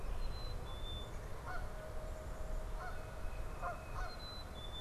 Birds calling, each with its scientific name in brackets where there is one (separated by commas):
Black-capped Chickadee (Poecile atricapillus), Tufted Titmouse (Baeolophus bicolor), Canada Goose (Branta canadensis)